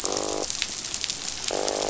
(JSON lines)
{"label": "biophony, croak", "recorder": "SoundTrap 500"}